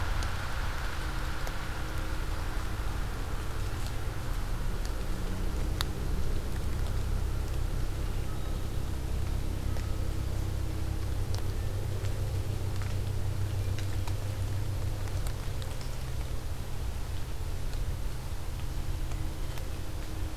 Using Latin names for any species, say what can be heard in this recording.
forest ambience